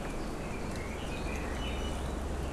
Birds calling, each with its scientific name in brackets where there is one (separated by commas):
Iiwi (Drepanis coccinea), Red-billed Leiothrix (Leiothrix lutea)